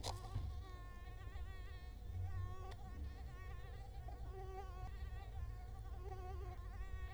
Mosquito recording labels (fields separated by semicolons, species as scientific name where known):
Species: Culex quinquefasciatus; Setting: cup